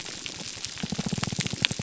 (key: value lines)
label: biophony, pulse
recorder: SoundTrap 300